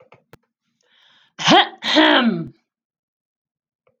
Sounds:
Throat clearing